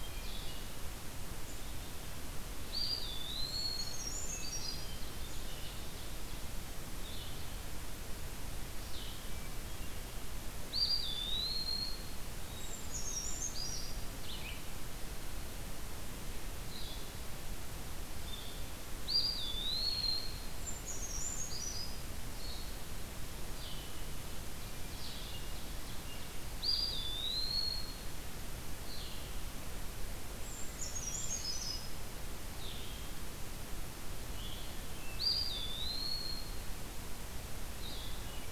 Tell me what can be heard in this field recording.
Hermit Thrush, Blue-headed Vireo, Black-capped Chickadee, Eastern Wood-Pewee, Brown Creeper, Ovenbird